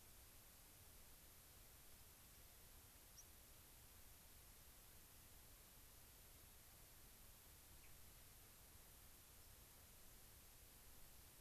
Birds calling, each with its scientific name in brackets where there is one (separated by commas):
unidentified bird, White-crowned Sparrow (Zonotrichia leucophrys)